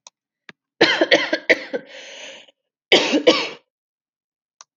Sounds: Cough